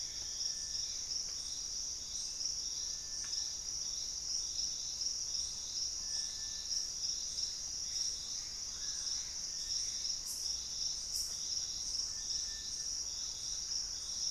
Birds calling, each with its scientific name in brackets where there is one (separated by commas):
Purple-throated Fruitcrow (Querula purpurata), Gray Antbird (Cercomacra cinerascens), Thrush-like Wren (Campylorhynchus turdinus), Little Tinamou (Crypturellus soui), Screaming Piha (Lipaugus vociferans)